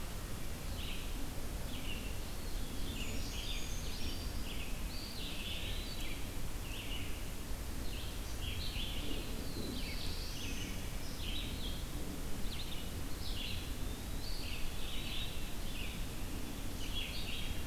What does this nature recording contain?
Red-eyed Vireo, Eastern Wood-Pewee, Brown Creeper, Wood Thrush, Black-throated Blue Warbler